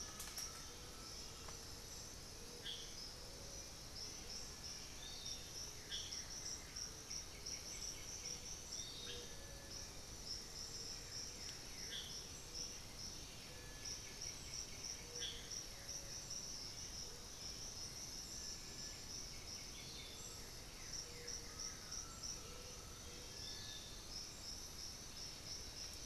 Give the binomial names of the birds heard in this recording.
Saltator coerulescens, Crypturellus undulatus, Legatus leucophaius, Crypturellus soui, Pachyramphus polychopterus